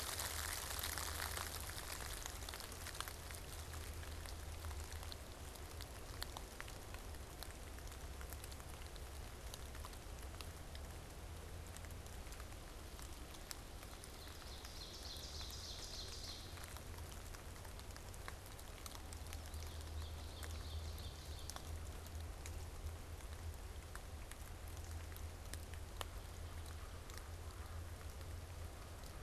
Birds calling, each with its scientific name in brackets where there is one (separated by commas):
Ovenbird (Seiurus aurocapilla), Common Yellowthroat (Geothlypis trichas)